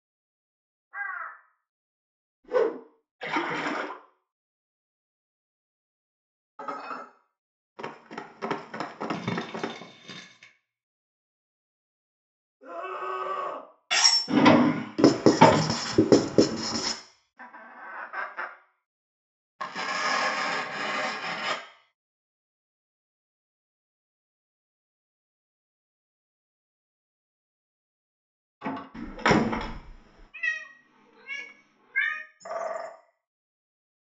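At 0.91 seconds, a crow can be heard. After that, at 2.43 seconds, there is a whoosh. Afterwards, at 3.19 seconds, a splash is audible. Later, at 6.58 seconds, the sound of dishes comes through. Following that, at 7.76 seconds, someone runs. Meanwhile, at 9.12 seconds, there is crumpling. Later, at 12.6 seconds, someone screams. After that, at 13.9 seconds, loud cutlery is audible. Afterwards, at 14.28 seconds, a drawer loudly opens or closes. Over it, at 14.97 seconds, writing is audible. Following that, at 17.36 seconds, a chicken can be heard. Then, at 19.59 seconds, you can hear tearing. After that, at 28.61 seconds, a wooden cupboard closes. Following that, at 28.94 seconds, a wooden door closes. Later, at 30.33 seconds, a cat is heard. Finally, at 32.4 seconds, a bird can be heard.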